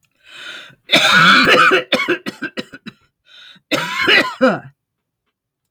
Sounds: Cough